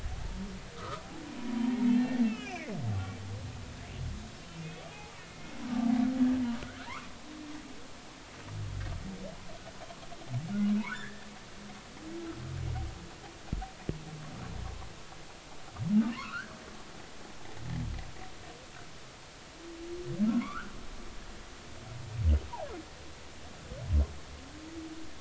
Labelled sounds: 1.2	3.2	humpback whale, 0.86 to 3.2 kHz
4.6	5.6	humpback whale, 0.80 to 2.7 kHz
10.8	11.3	humpback whale, 0.86 to 1.9 kHz
16.1	16.5	humpback whale, 0.96 to 1.7 kHz
20.4	20.7	humpback whale, 0.93 to 1.7 kHz

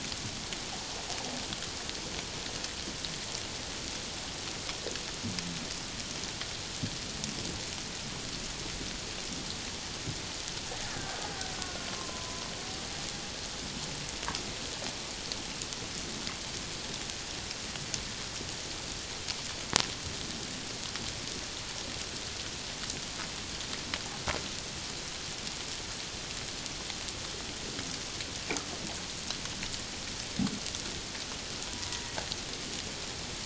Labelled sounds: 10.9	12.4	killer whale, Bigg's (transient), 0.94 to 1.8 kHz
31.7	32.0	killer whale, Bigg's (transient), 0.94 to 1.0 kHz

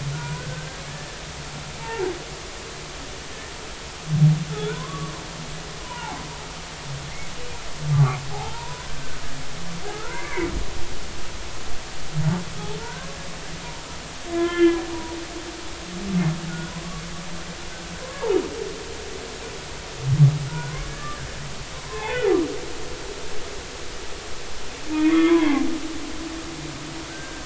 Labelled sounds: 0.1	2.1	humpback whale, 0.80 to 1.8 kHz
4.5	5.1	humpback whale, 0.93 to 1.6 kHz
5.8	6.2	humpback whale, 0.80 to 1.1 kHz
7.9	9.2	humpback whale, 0.80 to 1.6 kHz
9.9	10.5	humpback whale, 1.2 to 2.4 kHz
12.8	13.1	humpback whale, 1.3 to 1.7 kHz
14.3	14.8	humpback whale, 0.99 to 3.3 kHz
16.5	16.7	humpback whale, 1.4 to 1.5 kHz
19.0	19.3	humpback whale, 0.99 to 1.2 kHz
20.5	21.3	humpback whale, 1.1 to 1.8 kHz
21.8	22.3	humpback whale, 0.96 to 3.6 kHz
25.0	25.7	humpback whale, 0.93 to 3.5 kHz
27.1	27.4	humpback whale, 1.5 to 1.7 kHz

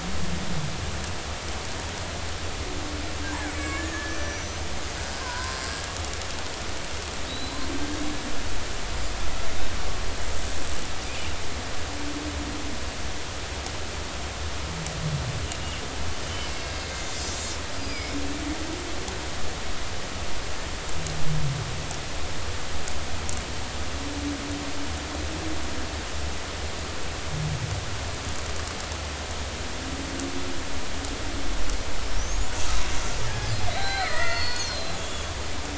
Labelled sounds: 3.2	4.4	killer whale, Bigg's (transient), 1.0 to 6.1 kHz
5.2	5.7	killer whale, Bigg's (transient), 0.93 to 1.6 kHz
7.3	7.7	killer whale, Bigg's (transient), 3.7 to 4.4 kHz
16.3	17.2	killer whale, Bigg's (transient), 2.0 to 6.9 kHz
17.8	18.2	killer whale, Bigg's (transient), 2.1 to 5.2 kHz
32.2	32.5	killer whale, Bigg's (transient), 5.6 to 7.2 kHz
33.3	35.3	killer whale, Bigg's (transient), 0.80 to 6.9 kHz

